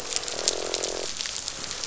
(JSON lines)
{"label": "biophony, croak", "recorder": "SoundTrap 500"}